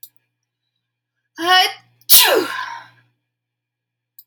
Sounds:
Sneeze